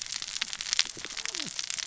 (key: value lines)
label: biophony, cascading saw
recorder: SoundTrap 600 or HydroMoth